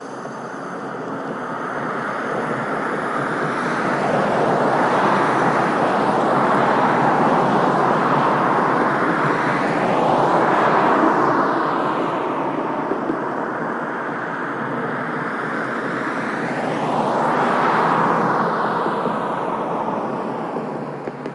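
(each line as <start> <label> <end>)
0.0 Cars driving by. 13.5
0.0 Traffic sounds in the background. 21.3
15.1 Cars passing by. 21.0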